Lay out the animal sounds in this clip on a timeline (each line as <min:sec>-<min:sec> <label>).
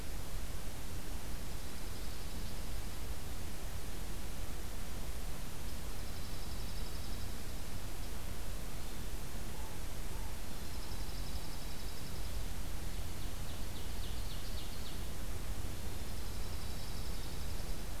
0:01.1-0:03.2 Dark-eyed Junco (Junco hyemalis)
0:05.8-0:07.5 Dark-eyed Junco (Junco hyemalis)
0:09.0-0:11.8 American Crow (Corvus brachyrhynchos)
0:10.4-0:12.4 Dark-eyed Junco (Junco hyemalis)
0:13.3-0:15.0 Ovenbird (Seiurus aurocapilla)
0:15.8-0:18.0 Dark-eyed Junco (Junco hyemalis)